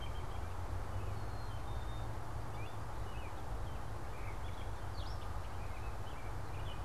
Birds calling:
Black-capped Chickadee (Poecile atricapillus)
American Robin (Turdus migratorius)
Gray Catbird (Dumetella carolinensis)

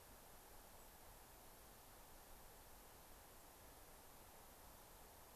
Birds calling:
White-crowned Sparrow (Zonotrichia leucophrys)

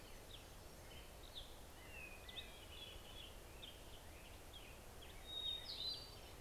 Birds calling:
Hermit Warbler (Setophaga occidentalis)
Hermit Thrush (Catharus guttatus)
Black-headed Grosbeak (Pheucticus melanocephalus)

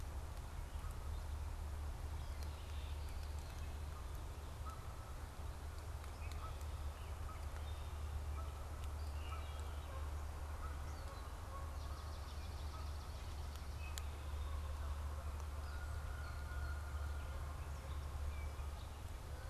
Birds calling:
Swamp Sparrow (Melospiza georgiana)
Red-winged Blackbird (Agelaius phoeniceus)
Canada Goose (Branta canadensis)

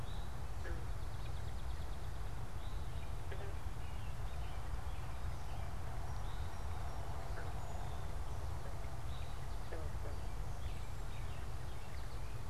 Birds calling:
Eastern Towhee (Pipilo erythrophthalmus)
Swamp Sparrow (Melospiza georgiana)
American Robin (Turdus migratorius)

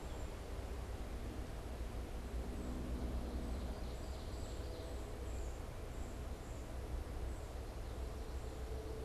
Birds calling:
Cedar Waxwing (Bombycilla cedrorum)
Ovenbird (Seiurus aurocapilla)

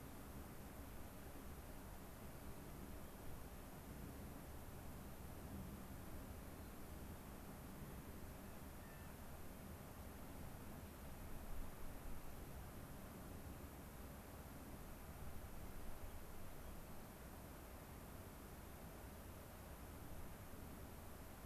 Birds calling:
unidentified bird
Clark's Nutcracker (Nucifraga columbiana)

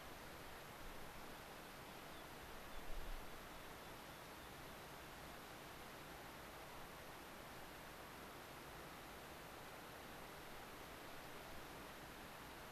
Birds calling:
American Pipit (Anthus rubescens)

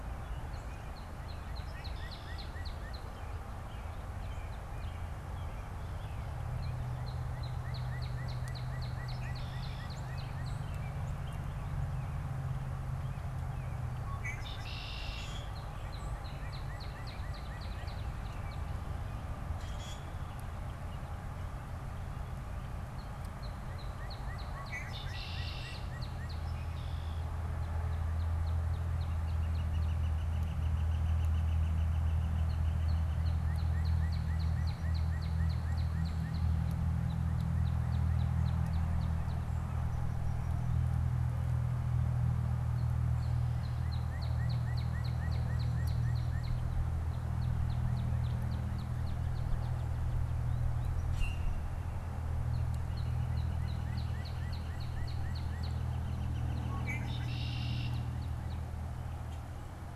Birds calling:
American Robin (Turdus migratorius)
Northern Flicker (Colaptes auratus)
Common Grackle (Quiscalus quiscula)
unidentified bird
Red-winged Blackbird (Agelaius phoeniceus)
Northern Cardinal (Cardinalis cardinalis)

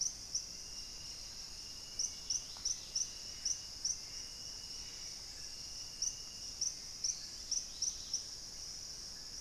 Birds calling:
Gray Antbird (Cercomacra cinerascens)
Thrush-like Wren (Campylorhynchus turdinus)
Hauxwell's Thrush (Turdus hauxwelli)
Dusky-capped Greenlet (Pachysylvia hypoxantha)
unidentified bird

